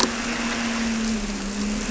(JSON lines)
{"label": "anthrophony, boat engine", "recorder": "SoundTrap 300"}